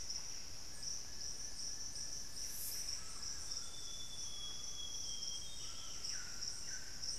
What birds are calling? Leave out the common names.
Cantorchilus leucotis, Cacicus solitarius, Ramphastos tucanus, Thamnophilus schistaceus, Cyanoloxia rothschildii, Lipaugus vociferans